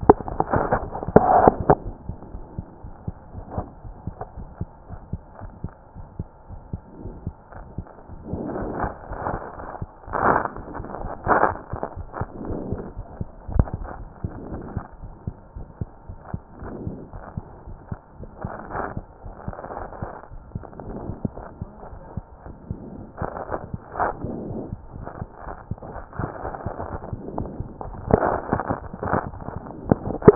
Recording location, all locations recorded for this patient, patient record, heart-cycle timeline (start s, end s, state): aortic valve (AV)
aortic valve (AV)+mitral valve (MV)
#Age: Child
#Sex: Male
#Height: 99.0 cm
#Weight: 14.2 kg
#Pregnancy status: False
#Murmur: Present
#Murmur locations: aortic valve (AV)+mitral valve (MV)
#Most audible location: mitral valve (MV)
#Systolic murmur timing: Holosystolic
#Systolic murmur shape: Plateau
#Systolic murmur grading: I/VI
#Systolic murmur pitch: Medium
#Systolic murmur quality: Blowing
#Diastolic murmur timing: nan
#Diastolic murmur shape: nan
#Diastolic murmur grading: nan
#Diastolic murmur pitch: nan
#Diastolic murmur quality: nan
#Outcome: Normal
#Campaign: 2014 screening campaign
0.00	2.49	unannotated
2.49	2.56	diastole
2.56	2.64	S1
2.64	2.83	systole
2.83	2.92	S2
2.92	3.06	diastole
3.06	3.12	S1
3.12	3.36	systole
3.36	3.44	S2
3.44	3.56	diastole
3.56	3.68	S1
3.68	3.86	systole
3.86	3.94	S2
3.94	4.06	diastole
4.06	4.14	S1
4.14	4.38	systole
4.38	4.48	S2
4.48	4.60	diastole
4.60	4.68	S1
4.68	4.90	systole
4.90	5.00	S2
5.00	5.12	diastole
5.12	5.22	S1
5.22	5.42	systole
5.42	5.50	S2
5.50	5.64	diastole
5.64	5.72	S1
5.72	5.96	systole
5.96	6.06	S2
6.06	6.18	diastole
6.18	6.28	S1
6.28	6.50	systole
6.50	6.60	S2
6.60	6.72	diastole
6.72	6.80	S1
6.80	7.02	systole
7.02	7.14	S2
7.14	7.26	diastole
7.26	7.34	S1
7.34	7.56	systole
7.56	7.64	S2
7.64	7.73	diastole
7.73	30.35	unannotated